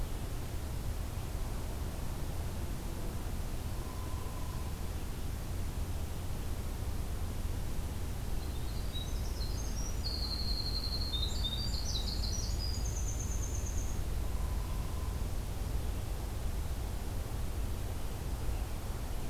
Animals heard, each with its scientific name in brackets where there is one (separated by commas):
Hairy Woodpecker (Dryobates villosus), Winter Wren (Troglodytes hiemalis)